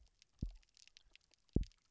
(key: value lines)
label: biophony, double pulse
recorder: SoundTrap 300